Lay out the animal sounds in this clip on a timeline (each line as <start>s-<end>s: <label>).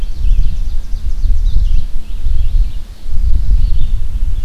0.0s-4.0s: Ovenbird (Seiurus aurocapilla)
0.0s-4.4s: Red-eyed Vireo (Vireo olivaceus)